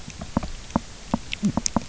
{"label": "biophony, knock", "recorder": "SoundTrap 300"}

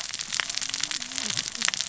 {"label": "biophony, cascading saw", "recorder": "SoundTrap 600 or HydroMoth"}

